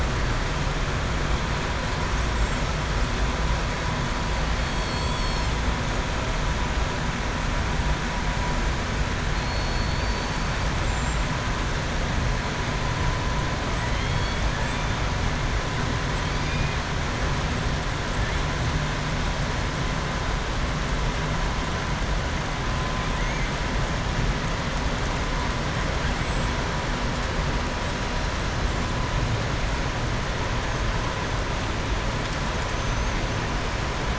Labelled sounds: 4.6	5.5	killer whale, southern resident, 3.3 to 7.7 kHz
9.3	10.4	killer whale, southern resident, 3.6 to 4.6 kHz
13.8	14.4	killer whale, southern resident, 2.1 to 4.6 kHz
16.2	16.6	killer whale, southern resident, 4.6 to 5.0 kHz

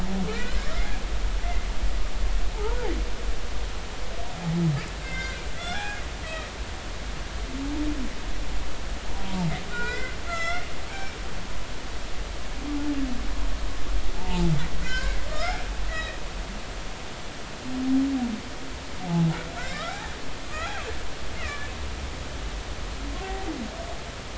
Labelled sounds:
0.3	0.6	humpback whale, 1.3 to 1.6 kHz
1.4	1.7	humpback whale, 2.0 to 2.1 kHz
2.5	2.8	humpback whale, 0.80 to 1.0 kHz
5.0	6.5	humpback whale, 0.80 to 6.0 kHz
9.7	11.2	humpback whale, 1.3 to 7.6 kHz
14.1	16.2	humpback whale, 0.83 to 2.3 kHz
19.1	20.0	humpback whale, 0.80 to 2.4 kHz
20.4	21.7	humpback whale, 1.1 to 2.9 kHz
23.2	23.5	humpback whale, 0.80 to 0.83 kHz

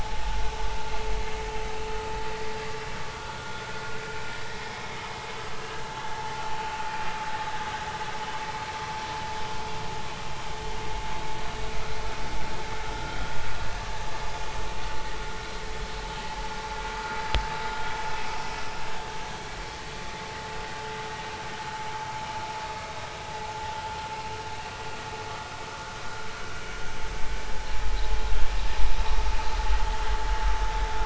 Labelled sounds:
3.1	3.4	vessel noise, 1.3 to 1.5 kHz
12.9	13.2	vessel noise, 1.3 to 1.5 kHz

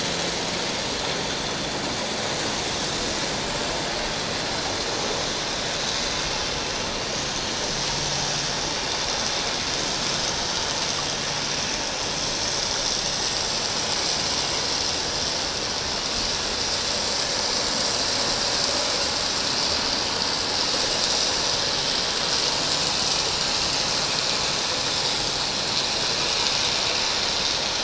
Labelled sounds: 3.6	3.9	vessel noise, 7.4 to 7.6 kHz

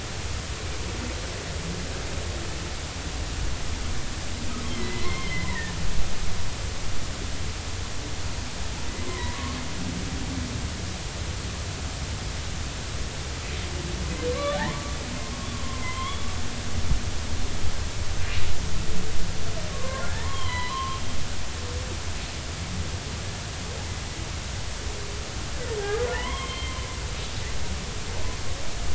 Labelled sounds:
4.7	5.8	humpback whale, 0.99 to 3.2 kHz
9.0	9.4	humpback whale, 0.90 to 2.1 kHz
14.3	14.6	humpback whale, 1.0 to 1.3 kHz
15.5	16.3	humpback whale, 0.96 to 3.5 kHz
19.7	21.0	humpback whale, 0.83 to 4.1 kHz
25.8	26.8	humpback whale, 0.83 to 3.3 kHz

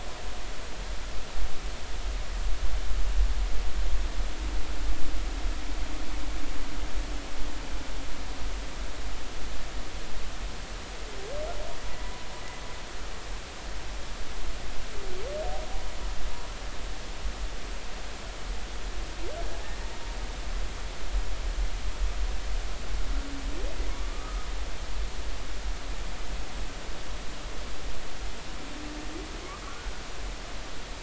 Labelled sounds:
24.1	24.5	humpback whale, 1.1 to 1.3 kHz
29.6	29.9	humpback whale, 1.2 to 1.5 kHz

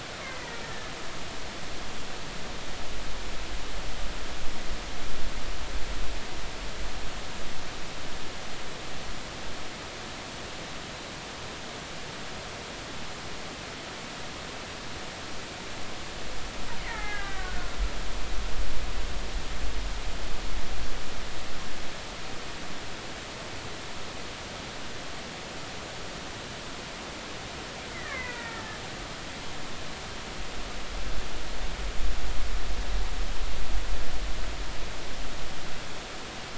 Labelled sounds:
0.2	0.9	killer whale, Bigg's (transient), 1.7 to 2.2 kHz
16.8	17.8	killer whale, Bigg's (transient), 0.80 to 2.4 kHz
27.9	28.8	killer whale, Bigg's (transient), 0.90 to 2.6 kHz

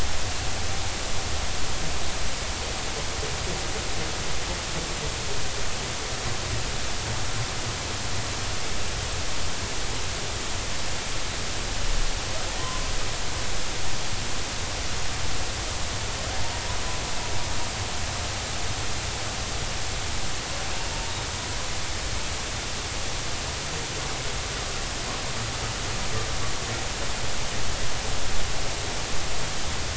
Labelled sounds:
12.6	12.9	humpback whale, 0.96 to 1.2 kHz

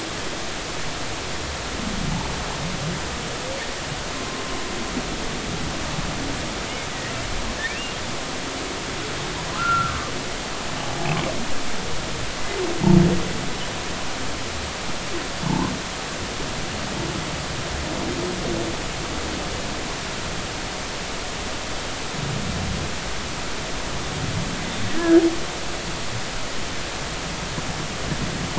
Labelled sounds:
9.5	10.1	humpback whale, 1.1 to 1.5 kHz
10.8	11.2	humpback whale, 0.80 to 0.86 kHz
15.5	15.7	humpback whale, 0.83 to 1.1 kHz
25.0	25.2	humpback whale, 1.4 to 1.8 kHz

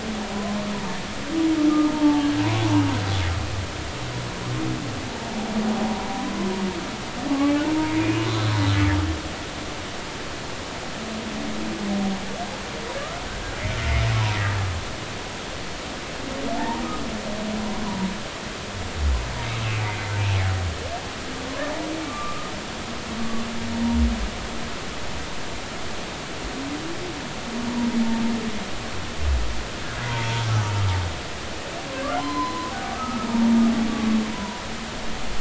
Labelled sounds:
1.7	2.3	humpback whale, 0.83 to 1.3 kHz
8.2	8.5	humpback whale, 3.9 to 4.1 kHz
16.5	16.8	humpback whale, 0.80 to 1.1 kHz
22.1	22.5	humpback whale, 1.1 to 1.4 kHz
30.0	30.4	humpback whale, 0.86 to 1.1 kHz
32.2	33.6	humpback whale, 0.90 to 4.2 kHz
34.3	34.6	humpback whale, 0.93 to 1.0 kHz

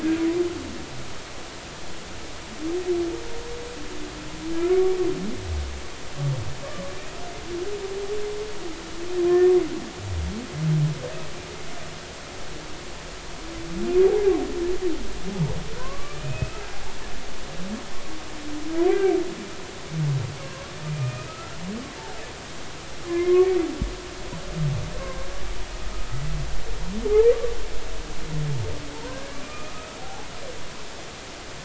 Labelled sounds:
4.7	5.0	humpback whale, 1.1 to 1.2 kHz
15.8	16.6	humpback whale, 0.96 to 2.7 kHz
18.9	19.2	humpback whale, 1.5 to 1.7 kHz
20.4	21.4	humpback whale, 0.99 to 2.6 kHz
22.3	23.6	humpback whale, 0.99 to 2.4 kHz
25.0	25.3	humpback whale, 0.99 to 1.1 kHz
28.9	30.3	humpback whale, 0.80 to 2.6 kHz

